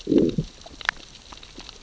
{"label": "biophony, growl", "recorder": "SoundTrap 600 or HydroMoth"}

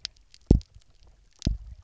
{"label": "biophony, double pulse", "recorder": "SoundTrap 300"}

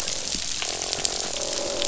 {"label": "biophony, croak", "recorder": "SoundTrap 500"}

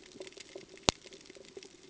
{"label": "ambient", "recorder": "HydroMoth"}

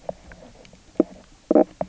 {"label": "biophony, knock croak", "recorder": "SoundTrap 300"}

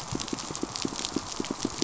{"label": "biophony, pulse", "recorder": "SoundTrap 500"}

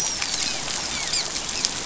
{"label": "biophony, dolphin", "recorder": "SoundTrap 500"}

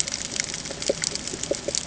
{"label": "ambient", "recorder": "HydroMoth"}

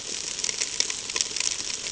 {"label": "ambient", "recorder": "HydroMoth"}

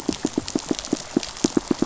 {"label": "biophony, pulse", "recorder": "SoundTrap 500"}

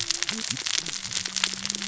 {"label": "biophony, cascading saw", "recorder": "SoundTrap 600 or HydroMoth"}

